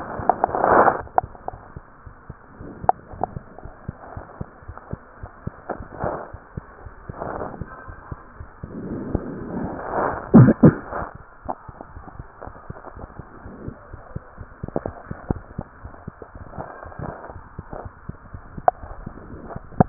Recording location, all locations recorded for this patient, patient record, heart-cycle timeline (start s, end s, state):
mitral valve (MV)
aortic valve (AV)+pulmonary valve (PV)+tricuspid valve (TV)+mitral valve (MV)
#Age: Child
#Sex: Male
#Height: 125.0 cm
#Weight: 28.3 kg
#Pregnancy status: False
#Murmur: Absent
#Murmur locations: nan
#Most audible location: nan
#Systolic murmur timing: nan
#Systolic murmur shape: nan
#Systolic murmur grading: nan
#Systolic murmur pitch: nan
#Systolic murmur quality: nan
#Diastolic murmur timing: nan
#Diastolic murmur shape: nan
#Diastolic murmur grading: nan
#Diastolic murmur pitch: nan
#Diastolic murmur quality: nan
#Outcome: Normal
#Campaign: 2015 screening campaign
0.00	1.90	unannotated
1.90	2.05	diastole
2.05	2.16	S1
2.16	2.28	systole
2.28	2.38	S2
2.38	2.58	diastole
2.58	2.70	S1
2.70	2.78	systole
2.78	2.90	S2
2.90	3.12	diastole
3.12	3.21	S1
3.21	3.34	systole
3.34	3.44	S2
3.44	3.64	diastole
3.64	3.74	S1
3.74	3.84	systole
3.84	3.96	S2
3.96	4.16	diastole
4.16	4.26	S1
4.26	4.36	systole
4.36	4.50	S2
4.50	4.68	diastole
4.68	4.78	S1
4.78	4.88	systole
4.88	5.02	S2
5.02	5.18	diastole
5.18	5.32	S1
5.32	5.42	systole
5.42	5.56	S2
5.56	5.76	diastole
5.76	5.88	S1
5.88	5.98	systole
5.98	6.14	S2
6.14	6.32	diastole
6.32	6.40	S1
6.40	6.52	systole
6.52	6.62	S2
6.62	6.84	diastole
6.84	6.96	S1
6.96	7.08	systole
7.08	7.20	S2
7.20	7.38	diastole
7.38	7.52	S1
7.52	7.58	systole
7.58	7.70	S2
7.70	7.88	diastole
7.88	7.98	S1
7.98	8.08	systole
8.08	8.18	S2
8.18	8.40	diastole
8.40	8.50	S1
8.50	8.62	systole
8.62	8.70	S2
8.70	8.86	diastole
8.86	19.89	unannotated